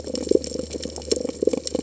{"label": "biophony", "recorder": "HydroMoth"}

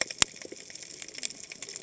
{"label": "biophony, cascading saw", "recorder": "HydroMoth"}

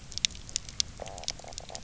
{"label": "biophony, knock croak", "recorder": "SoundTrap 300"}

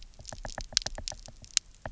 {"label": "biophony, knock", "recorder": "SoundTrap 300"}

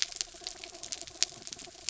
{"label": "anthrophony, mechanical", "recorder": "SoundTrap 300"}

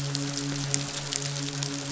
{"label": "biophony, midshipman", "recorder": "SoundTrap 500"}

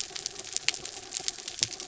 {"label": "anthrophony, mechanical", "recorder": "SoundTrap 300"}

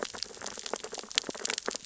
{"label": "biophony, sea urchins (Echinidae)", "recorder": "SoundTrap 600 or HydroMoth"}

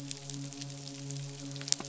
{"label": "biophony, midshipman", "recorder": "SoundTrap 500"}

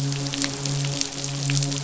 {"label": "biophony, midshipman", "recorder": "SoundTrap 500"}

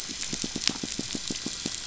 {"label": "biophony, pulse", "recorder": "SoundTrap 500"}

